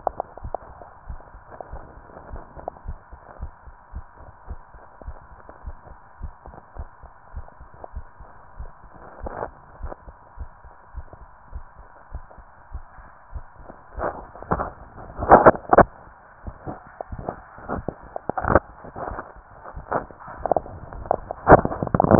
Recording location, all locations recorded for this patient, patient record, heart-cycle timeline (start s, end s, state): mitral valve (MV)
aortic valve (AV)+pulmonary valve (PV)+tricuspid valve (TV)+mitral valve (MV)
#Age: Child
#Sex: Female
#Height: 146.0 cm
#Weight: 44.3 kg
#Pregnancy status: False
#Murmur: Absent
#Murmur locations: nan
#Most audible location: nan
#Systolic murmur timing: nan
#Systolic murmur shape: nan
#Systolic murmur grading: nan
#Systolic murmur pitch: nan
#Systolic murmur quality: nan
#Diastolic murmur timing: nan
#Diastolic murmur shape: nan
#Diastolic murmur grading: nan
#Diastolic murmur pitch: nan
#Diastolic murmur quality: nan
#Outcome: Normal
#Campaign: 2015 screening campaign
0.00	1.06	unannotated
1.06	1.20	S1
1.20	1.33	systole
1.33	1.42	S2
1.42	1.72	diastole
1.72	1.84	S1
1.84	1.97	systole
1.97	2.05	S2
2.05	2.32	diastole
2.32	2.42	S1
2.42	2.58	systole
2.58	2.68	S2
2.68	2.86	diastole
2.86	2.98	S1
2.98	3.10	systole
3.10	3.20	S2
3.20	3.40	diastole
3.40	3.52	S1
3.52	3.65	systole
3.65	3.74	S2
3.74	3.94	diastole
3.94	4.04	S1
4.04	4.20	systole
4.20	4.31	S2
4.31	4.48	diastole
4.48	4.60	S1
4.60	4.73	systole
4.73	4.82	S2
4.82	5.06	diastole
5.06	5.16	S1
5.16	5.29	systole
5.29	5.40	S2
5.40	5.66	diastole
5.66	5.76	S1
5.76	5.89	systole
5.89	6.00	S2
6.00	6.22	diastole
6.22	6.32	S1
6.32	6.46	systole
6.46	6.54	S2
6.54	6.76	diastole
6.76	6.88	S1
6.88	7.01	systole
7.01	7.12	S2
7.12	7.36	diastole
7.36	7.46	S1
7.46	7.59	systole
7.59	7.70	S2
7.70	7.94	diastole
7.94	8.06	S1
8.06	8.18	systole
8.18	8.30	S2
8.30	8.58	diastole
8.58	8.70	S1
8.70	8.83	systole
8.83	8.92	S2
8.92	9.22	diastole
9.22	9.34	S1
9.34	9.47	systole
9.47	9.57	S2
9.57	9.82	diastole
9.82	9.92	S1
9.92	10.04	systole
10.04	10.14	S2
10.14	10.40	diastole
10.40	10.50	S1
10.50	10.64	systole
10.64	10.74	S2
10.74	10.96	diastole
10.96	11.06	S1
11.06	11.19	systole
11.19	11.28	S2
11.28	11.54	diastole
11.54	11.64	S1
11.64	11.77	systole
11.77	11.86	S2
11.86	12.14	diastole
12.14	12.24	S1
12.24	12.36	systole
12.36	12.48	S2
12.48	12.74	diastole
12.74	12.84	S1
12.84	12.97	systole
12.97	13.08	S2
13.08	13.34	diastole
13.34	13.44	S1
13.44	13.59	systole
13.59	13.66	S2
13.66	22.19	unannotated